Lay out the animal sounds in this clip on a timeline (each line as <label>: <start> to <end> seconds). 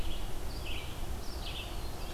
Red-eyed Vireo (Vireo olivaceus): 0.0 to 2.1 seconds
Black-throated Blue Warbler (Setophaga caerulescens): 1.4 to 2.1 seconds